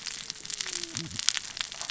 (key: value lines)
label: biophony, cascading saw
recorder: SoundTrap 600 or HydroMoth